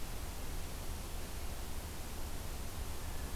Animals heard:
forest ambience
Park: Acadia National Park